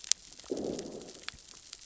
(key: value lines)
label: biophony, growl
recorder: SoundTrap 600 or HydroMoth